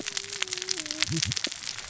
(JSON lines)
{"label": "biophony, cascading saw", "recorder": "SoundTrap 600 or HydroMoth"}